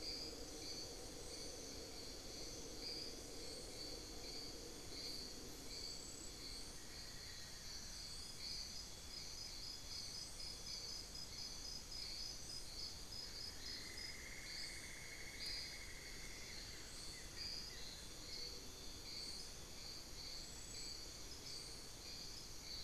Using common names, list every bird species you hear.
Amazonian Barred-Woodcreeper, Cinnamon-throated Woodcreeper, Buff-throated Woodcreeper